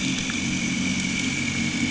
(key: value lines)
label: anthrophony, boat engine
recorder: HydroMoth